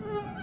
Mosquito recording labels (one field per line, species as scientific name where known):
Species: Aedes albopictus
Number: several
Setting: insect culture